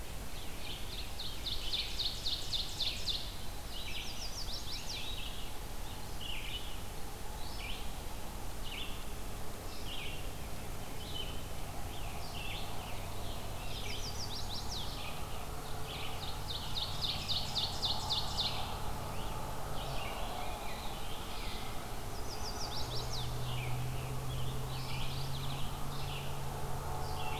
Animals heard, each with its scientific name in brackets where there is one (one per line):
Scarlet Tanager (Piranga olivacea)
Mourning Warbler (Geothlypis philadelphia)
Ovenbird (Seiurus aurocapilla)
Rose-breasted Grosbeak (Pheucticus ludovicianus)
Chestnut-sided Warbler (Setophaga pensylvanica)
Veery (Catharus fuscescens)
Red-eyed Vireo (Vireo olivaceus)